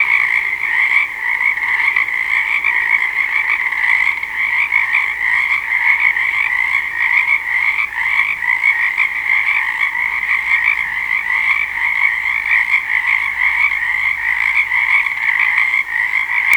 What sound are these animals making?
frog